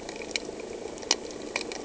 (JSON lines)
{"label": "anthrophony, boat engine", "recorder": "HydroMoth"}